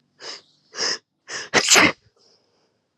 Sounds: Sneeze